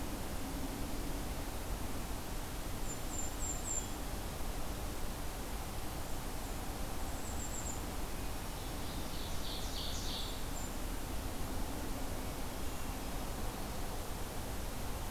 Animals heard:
Hermit Thrush (Catharus guttatus)
Ovenbird (Seiurus aurocapilla)
Golden-crowned Kinglet (Regulus satrapa)

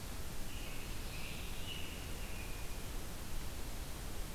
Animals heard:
American Robin (Turdus migratorius)

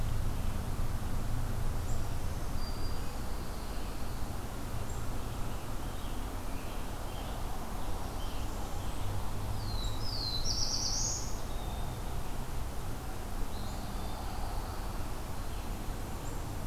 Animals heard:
Black-throated Green Warbler (Setophaga virens)
Scarlet Tanager (Piranga olivacea)
Eastern Wood-Pewee (Contopus virens)
Pine Warbler (Setophaga pinus)
Black-throated Blue Warbler (Setophaga caerulescens)

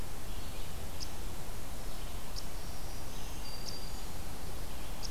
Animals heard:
Red-eyed Vireo (Vireo olivaceus)
unknown mammal
Black-throated Green Warbler (Setophaga virens)

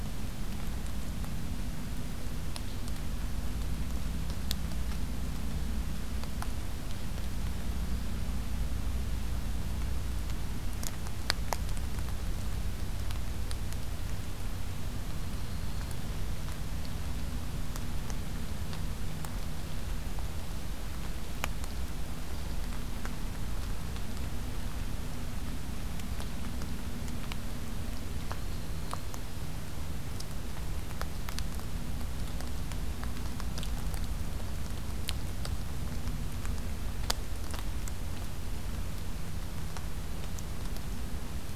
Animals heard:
Black-throated Green Warbler (Setophaga virens)

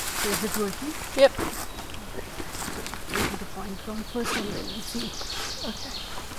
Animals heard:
Ovenbird (Seiurus aurocapilla)

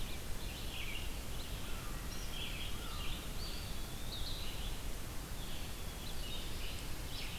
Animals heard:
American Crow (Corvus brachyrhynchos)
Red-eyed Vireo (Vireo olivaceus)
Eastern Wood-Pewee (Contopus virens)

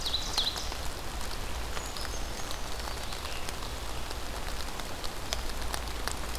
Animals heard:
Ovenbird (Seiurus aurocapilla)
Brown Creeper (Certhia americana)

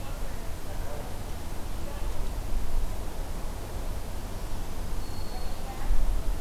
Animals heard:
Black-throated Green Warbler (Setophaga virens)

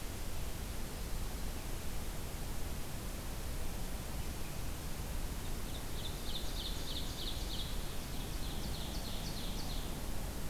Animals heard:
Ovenbird (Seiurus aurocapilla)

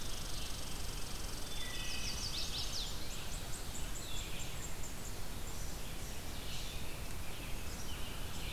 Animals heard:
American Robin (Turdus migratorius)
Wood Thrush (Hylocichla mustelina)
Red Squirrel (Tamiasciurus hudsonicus)
Red-eyed Vireo (Vireo olivaceus)
Chestnut-sided Warbler (Setophaga pensylvanica)

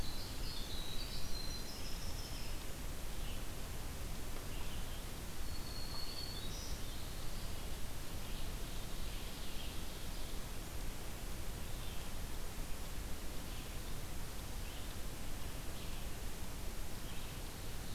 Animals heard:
Black-throated Green Warbler (Setophaga virens)
Ovenbird (Seiurus aurocapilla)
Winter Wren (Troglodytes hiemalis)
Red-eyed Vireo (Vireo olivaceus)
Black-throated Blue Warbler (Setophaga caerulescens)

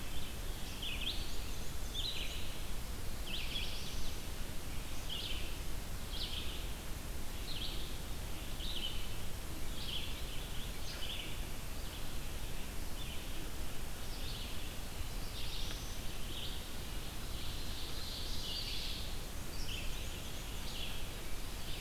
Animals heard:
Ovenbird (Seiurus aurocapilla)
Black-throated Blue Warbler (Setophaga caerulescens)
Red-eyed Vireo (Vireo olivaceus)
Black-and-white Warbler (Mniotilta varia)

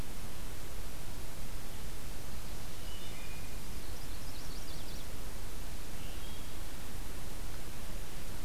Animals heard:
Chestnut-sided Warbler (Setophaga pensylvanica)
Wood Thrush (Hylocichla mustelina)

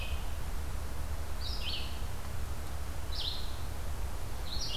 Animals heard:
Red-eyed Vireo (Vireo olivaceus)

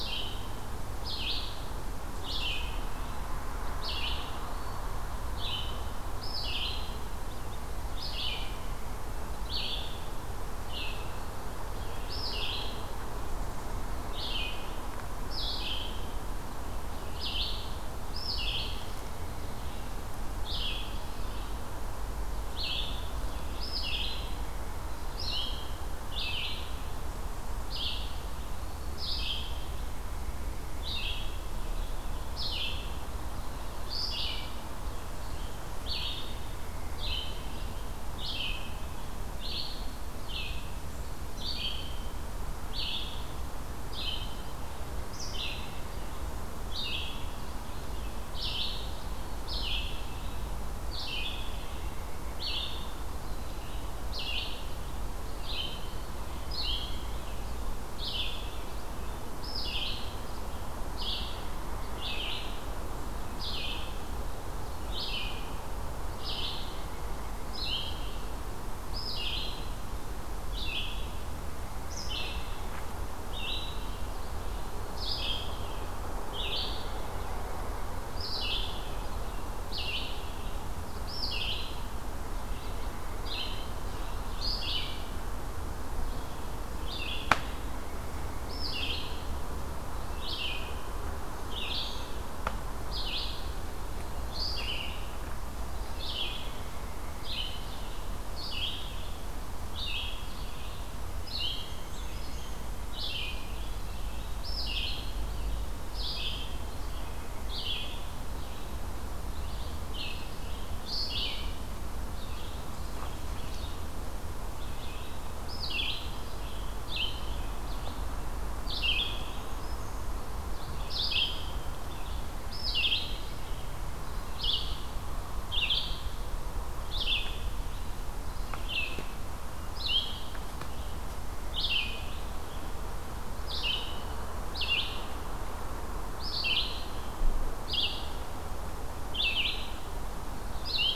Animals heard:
Black-throated Green Warbler (Setophaga virens)
Red-eyed Vireo (Vireo olivaceus)
Eastern Wood-Pewee (Contopus virens)

